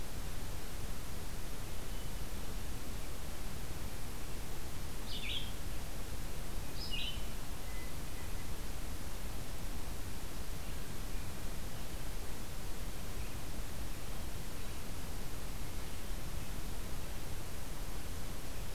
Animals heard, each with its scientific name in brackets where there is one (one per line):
Hermit Thrush (Catharus guttatus)
Red-eyed Vireo (Vireo olivaceus)